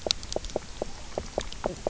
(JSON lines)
{"label": "biophony, knock croak", "recorder": "SoundTrap 300"}